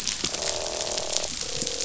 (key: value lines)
label: biophony, croak
recorder: SoundTrap 500